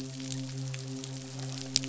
{"label": "biophony, midshipman", "recorder": "SoundTrap 500"}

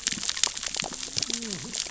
{"label": "biophony, cascading saw", "recorder": "SoundTrap 600 or HydroMoth"}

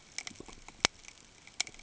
{"label": "ambient", "recorder": "HydroMoth"}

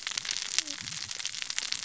{"label": "biophony, cascading saw", "recorder": "SoundTrap 600 or HydroMoth"}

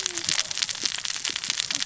{"label": "biophony, cascading saw", "recorder": "SoundTrap 600 or HydroMoth"}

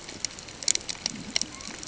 {"label": "ambient", "recorder": "HydroMoth"}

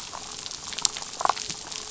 {"label": "biophony, damselfish", "recorder": "SoundTrap 500"}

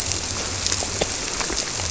{"label": "biophony", "recorder": "SoundTrap 300"}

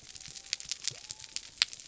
{"label": "biophony", "recorder": "SoundTrap 300"}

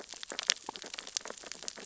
{"label": "biophony, sea urchins (Echinidae)", "recorder": "SoundTrap 600 or HydroMoth"}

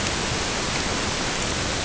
{"label": "ambient", "recorder": "HydroMoth"}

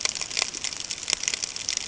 {"label": "ambient", "recorder": "HydroMoth"}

